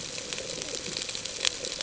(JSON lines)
{"label": "ambient", "recorder": "HydroMoth"}